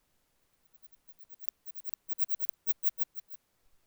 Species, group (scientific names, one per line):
Odontura stenoxypha
Orthoptera